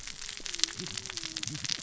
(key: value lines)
label: biophony, cascading saw
recorder: SoundTrap 600 or HydroMoth